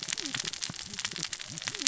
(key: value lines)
label: biophony, cascading saw
recorder: SoundTrap 600 or HydroMoth